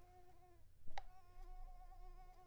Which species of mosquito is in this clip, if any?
Mansonia uniformis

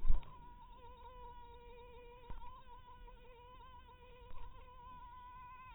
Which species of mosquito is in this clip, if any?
mosquito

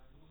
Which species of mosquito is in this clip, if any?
no mosquito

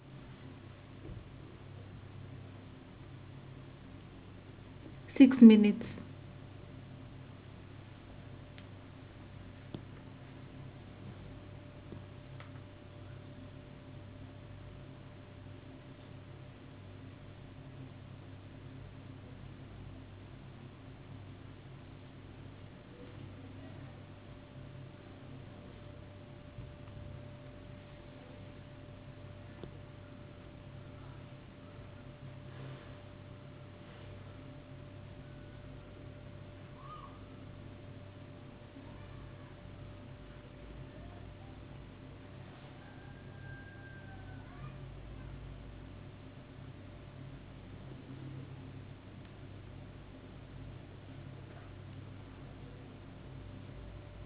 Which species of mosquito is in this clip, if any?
no mosquito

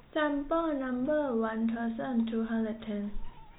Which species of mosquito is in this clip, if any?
no mosquito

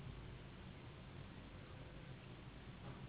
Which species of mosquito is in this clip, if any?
Anopheles gambiae s.s.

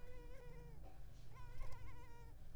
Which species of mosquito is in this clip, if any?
Culex pipiens complex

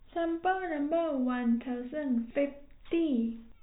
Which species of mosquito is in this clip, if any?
no mosquito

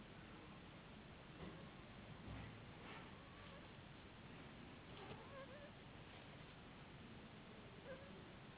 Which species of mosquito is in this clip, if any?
Anopheles gambiae s.s.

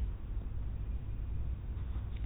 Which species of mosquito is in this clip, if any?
mosquito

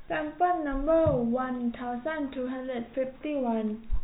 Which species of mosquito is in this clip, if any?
no mosquito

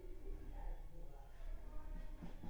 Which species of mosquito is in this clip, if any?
Anopheles funestus s.s.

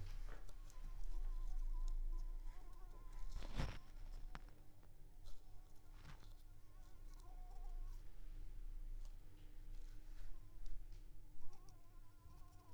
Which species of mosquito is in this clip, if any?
Anopheles squamosus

